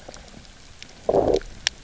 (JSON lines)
{"label": "biophony, low growl", "recorder": "SoundTrap 300"}